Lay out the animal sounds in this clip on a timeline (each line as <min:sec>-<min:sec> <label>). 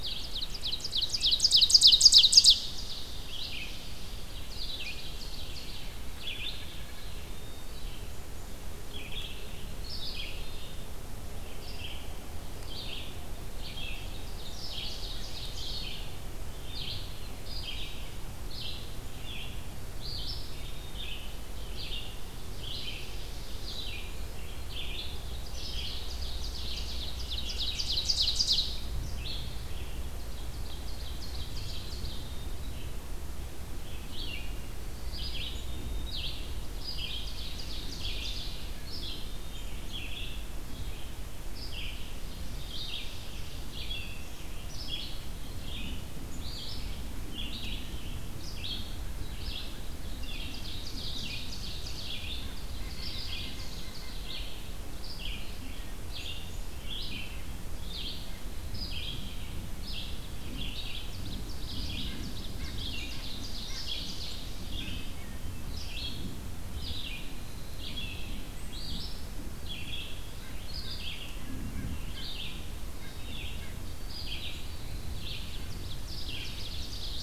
0:00.0-0:05.9 Ovenbird (Seiurus aurocapilla)
0:00.0-0:37.5 Red-eyed Vireo (Vireo olivaceus)
0:05.8-0:07.2 White-breasted Nuthatch (Sitta carolinensis)
0:06.8-0:08.1 Black-capped Chickadee (Poecile atricapillus)
0:13.8-0:16.0 Ovenbird (Seiurus aurocapilla)
0:25.1-0:28.7 Ovenbird (Seiurus aurocapilla)
0:30.0-0:32.4 Ovenbird (Seiurus aurocapilla)
0:35.5-0:36.3 Black-capped Chickadee (Poecile atricapillus)
0:36.7-0:38.7 Ovenbird (Seiurus aurocapilla)
0:37.9-1:17.2 Red-eyed Vireo (Vireo olivaceus)
0:41.9-0:43.8 Ovenbird (Seiurus aurocapilla)
0:43.4-0:44.6 Black-throated Green Warbler (Setophaga virens)
0:49.9-0:54.4 Ovenbird (Seiurus aurocapilla)
0:52.6-0:54.6 White-breasted Nuthatch (Sitta carolinensis)
1:00.7-1:04.3 Ovenbird (Seiurus aurocapilla)
1:01.9-1:05.1 White-breasted Nuthatch (Sitta carolinensis)
1:08.4-1:09.1 Black-capped Chickadee (Poecile atricapillus)
1:10.3-1:13.8 White-breasted Nuthatch (Sitta carolinensis)
1:12.9-1:16.0 White-throated Sparrow (Zonotrichia albicollis)
1:15.6-1:17.2 Ovenbird (Seiurus aurocapilla)